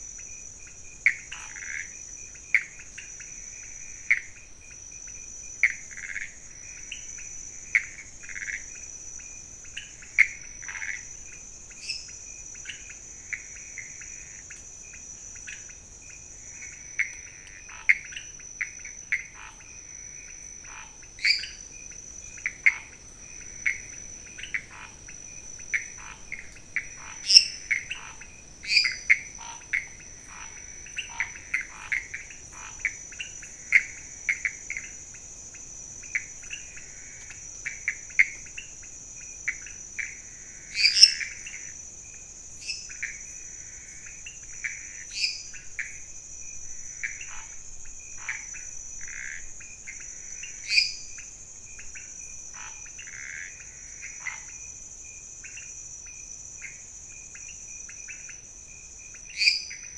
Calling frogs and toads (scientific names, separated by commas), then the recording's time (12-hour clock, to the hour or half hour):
Leptodactylus podicipinus, Pithecopus azureus, Dendropsophus minutus, Scinax fuscovarius
~11pm